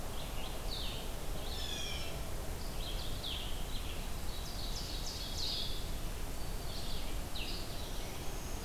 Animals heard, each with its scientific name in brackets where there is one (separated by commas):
Ovenbird (Seiurus aurocapilla), Blue Jay (Cyanocitta cristata), Blue-headed Vireo (Vireo solitarius), Red-eyed Vireo (Vireo olivaceus), Black-throated Green Warbler (Setophaga virens)